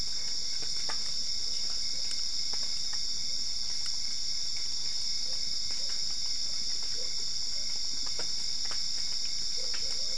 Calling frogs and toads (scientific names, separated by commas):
none